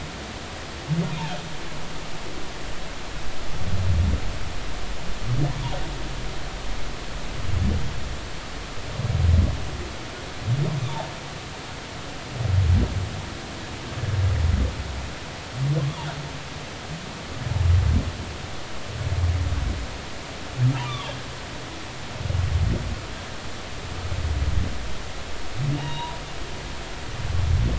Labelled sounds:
15.8	16.1	humpback whale, 0.83 to 1.2 kHz
20.9	21.1	humpback whale, 1.1 to 3.6 kHz
25.7	26.2	humpback whale, 0.80 to 3.9 kHz

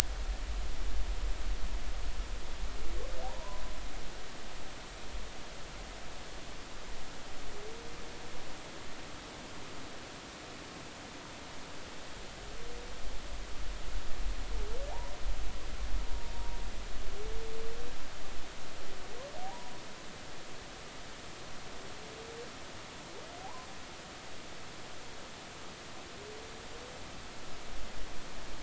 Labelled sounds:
3.2	3.6	humpback whale, 0.80 to 1.1 kHz
19.4	19.7	humpback whale, 0.80 to 1.0 kHz
23.4	23.7	humpback whale, 0.80 to 1.1 kHz

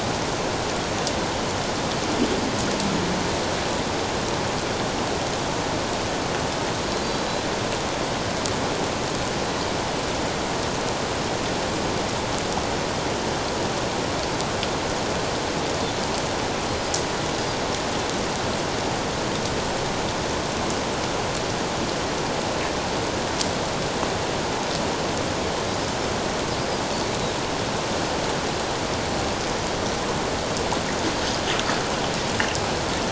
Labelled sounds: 7.0	7.3	killer whale, 4.6 to 4.8 kHz

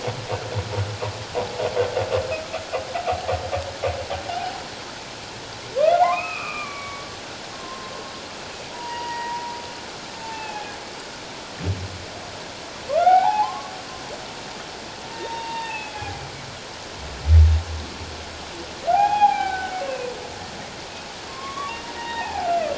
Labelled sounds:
5.9	7.9	humpback whale, 0.78 to 2.7 kHz
8.7	9.5	humpback whale, 0.88 to 2.0 kHz
10.2	10.8	humpback whale, 0.78 to 2.7 kHz
12.9	13.7	humpback whale, 0.78 to 2.4 kHz
15.1	16.2	humpback whale, 0.78 to 3.8 kHz
18.9	20.1	humpback whale, 0.78 to 3.4 kHz
21.3	22.5	humpback whale, 0.78 to 2.7 kHz

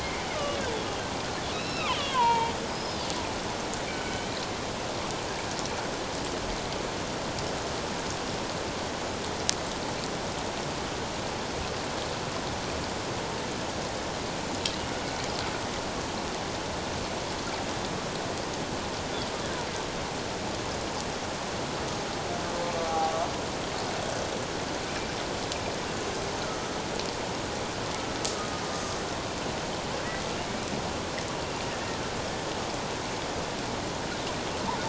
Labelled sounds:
0.0	0.3	killer whale, Bigg's (transient), 2.0 to 2.4 kHz
1.5	3.0	killer whale, Bigg's (transient), 0.84 to 5.2 kHz
3.9	4.2	killer whale, Bigg's (transient), 1.4 to 1.6 kHz
22.6	23.1	killer whale, Bigg's (transient), 0.78 to 1.2 kHz
30.4	30.7	killer whale, Bigg's (transient), 2.1 to 2.4 kHz

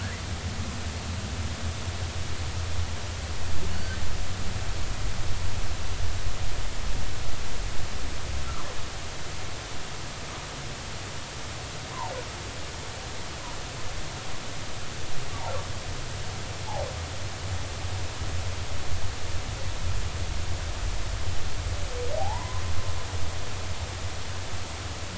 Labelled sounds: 3.7	4.0	humpback whale, 1.4 to 1.6 kHz
22.2	22.6	humpback whale, 0.80 to 1.1 kHz

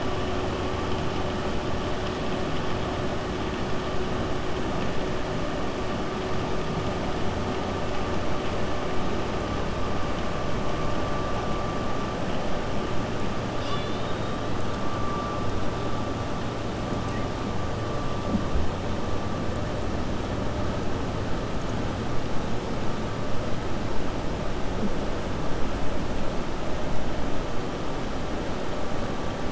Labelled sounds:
13.5	14.4	killer whale, 1.1 to 5.8 kHz

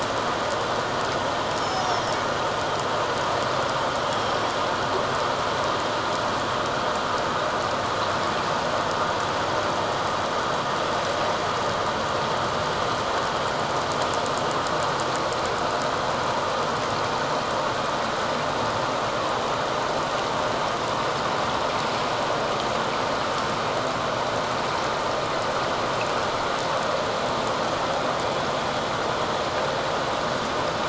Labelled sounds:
1.5	2.0	killer whale, northern resident, 5.1 to 6.9 kHz

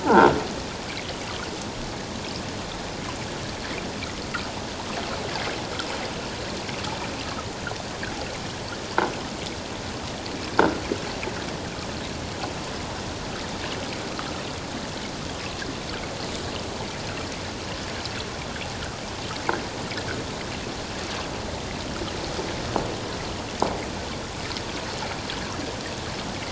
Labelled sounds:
0.0	0.4	croaking sound likely from a nearby submerged object, 0.78 to 1.7 kHz
10.5	10.8	croaking sound likely from a nearby submerged object, 1.3 to 1.7 kHz

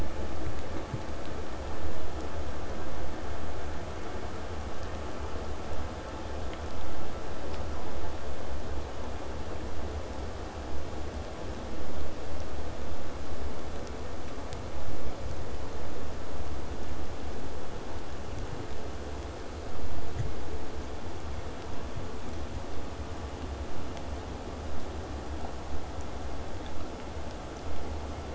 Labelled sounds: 21.7	26.7	vessel noise, 0 to 8.0 kHz

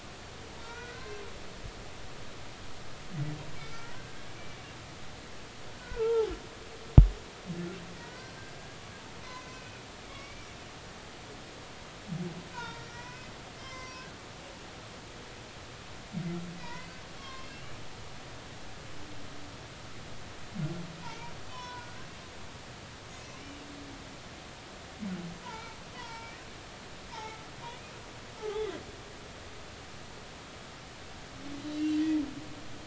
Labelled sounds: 0.6	1.2	humpback whale, 1.3 to 2.5 kHz
3.5	3.9	humpback whale, 2.2 to 2.3 kHz
5.8	6.3	humpback whale, 0.80 to 1.5 kHz
8.0	8.3	humpback whale, 1.4 to 1.6 kHz
9.2	9.8	humpback whale, 2.0 to 2.6 kHz
10.1	10.6	humpback whale, 1.0 to 2.4 kHz
12.5	13.3	humpback whale, 0.86 to 2.6 kHz
13.6	14.1	humpback whale, 0.96 to 5.9 kHz
16.5	17.8	humpback whale, 0.90 to 5.5 kHz
21.0	22.0	humpback whale, 0.86 to 5.2 kHz
25.4	26.4	humpback whale, 0.86 to 5.2 kHz
27.1	27.4	humpback whale, 0.80 to 2.3 kHz
28.4	28.8	humpback whale, 0.80 to 3.6 kHz
31.7	32.0	humpback whale, 2.7 to 3.1 kHz

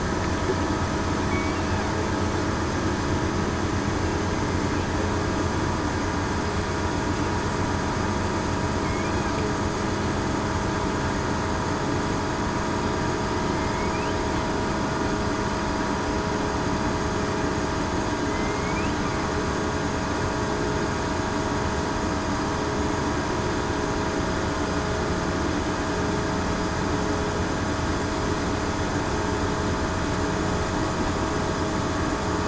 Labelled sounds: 13.5	13.9	killer whale, southern resident, 2.1 to 2.3 kHz
18.3	18.7	killer whale, southern resident, 2.0 to 2.3 kHz

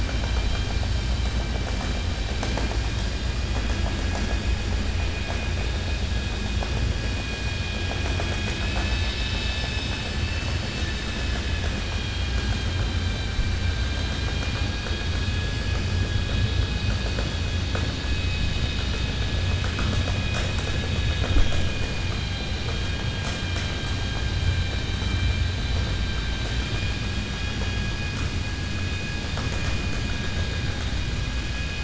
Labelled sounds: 0.0	0.7	vessel noise, 1.4 to 4.0 kHz
11.2	13.6	vessel noise, 1.4 to 4.1 kHz
26.5	27.0	vessel noise, 1.6 to 4.0 kHz

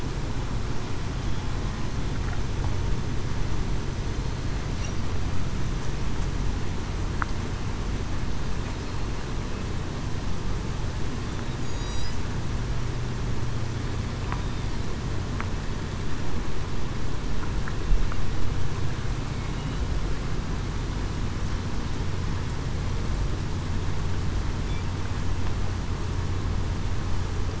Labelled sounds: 11.6	12.1	killer whale, southern resident, 3.8 to 6.9 kHz

